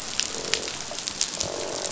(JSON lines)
{"label": "biophony, croak", "recorder": "SoundTrap 500"}